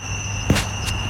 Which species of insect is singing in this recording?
Microcentrum rhombifolium